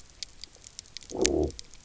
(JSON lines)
{"label": "biophony, low growl", "recorder": "SoundTrap 300"}